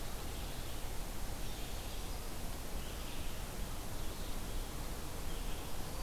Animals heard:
Red-eyed Vireo (Vireo olivaceus)

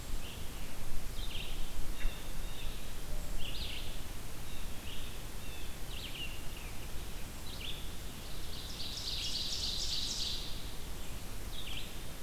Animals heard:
Brown Creeper (Certhia americana), Ovenbird (Seiurus aurocapilla), Blue Jay (Cyanocitta cristata), Red-eyed Vireo (Vireo olivaceus)

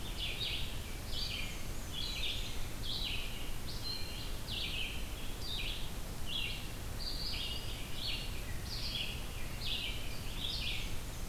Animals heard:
Black-and-white Warbler (Mniotilta varia), Red-eyed Vireo (Vireo olivaceus)

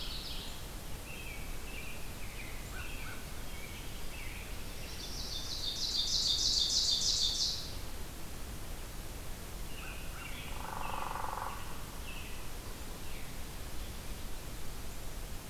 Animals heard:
American Robin (Turdus migratorius), Hairy Woodpecker (Dryobates villosus), American Crow (Corvus brachyrhynchos), Black-throated Blue Warbler (Setophaga caerulescens), Ovenbird (Seiurus aurocapilla), Mourning Warbler (Geothlypis philadelphia)

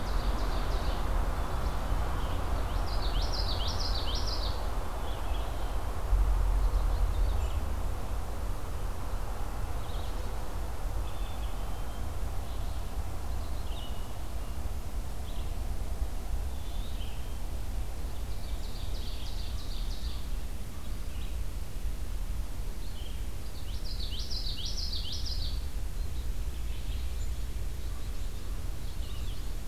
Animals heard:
Red-eyed Vireo (Vireo olivaceus), American Crow (Corvus brachyrhynchos), Common Yellowthroat (Geothlypis trichas), Black-capped Chickadee (Poecile atricapillus), Ovenbird (Seiurus aurocapilla)

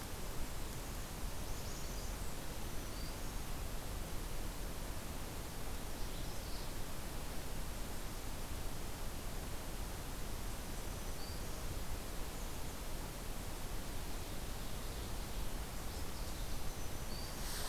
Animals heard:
American Redstart (Setophaga ruticilla), Ovenbird (Seiurus aurocapilla), Black-throated Green Warbler (Setophaga virens), Magnolia Warbler (Setophaga magnolia)

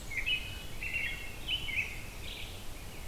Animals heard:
American Robin (Turdus migratorius)

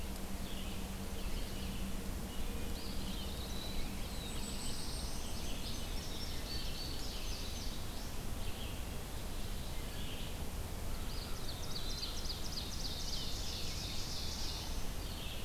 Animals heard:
Blackpoll Warbler (Setophaga striata), Black-throated Blue Warbler (Setophaga caerulescens), Eastern Wood-Pewee (Contopus virens), Indigo Bunting (Passerina cyanea), Red-eyed Vireo (Vireo olivaceus), Ovenbird (Seiurus aurocapilla), Chestnut-sided Warbler (Setophaga pensylvanica)

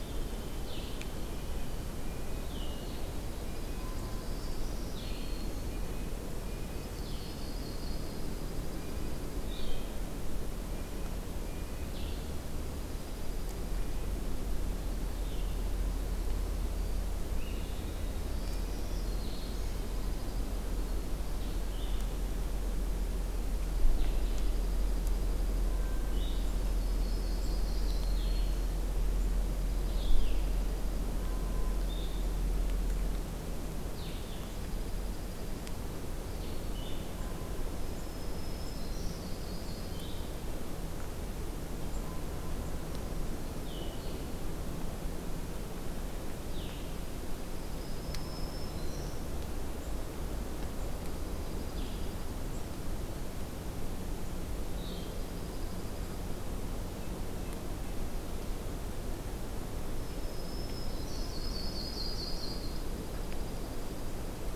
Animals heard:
Red-breasted Nuthatch (Sitta canadensis), Yellow-rumped Warbler (Setophaga coronata), Dark-eyed Junco (Junco hyemalis), Blue-headed Vireo (Vireo solitarius), Black-throated Green Warbler (Setophaga virens)

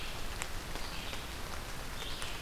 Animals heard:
Red-eyed Vireo (Vireo olivaceus)

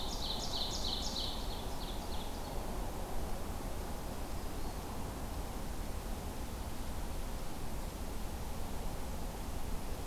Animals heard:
Black-throated Green Warbler (Setophaga virens), Ovenbird (Seiurus aurocapilla)

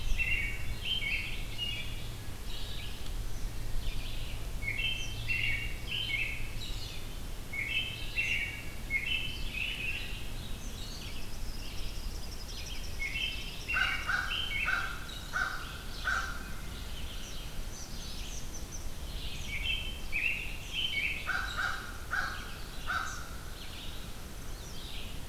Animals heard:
American Robin (Turdus migratorius), Eastern Kingbird (Tyrannus tyrannus), Red-eyed Vireo (Vireo olivaceus), American Crow (Corvus brachyrhynchos)

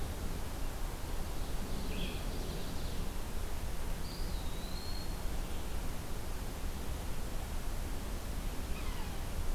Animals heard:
Eastern Wood-Pewee (Contopus virens), Blue-headed Vireo (Vireo solitarius), Yellow-bellied Sapsucker (Sphyrapicus varius), Ovenbird (Seiurus aurocapilla)

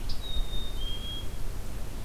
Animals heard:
Black-capped Chickadee (Poecile atricapillus), Scarlet Tanager (Piranga olivacea)

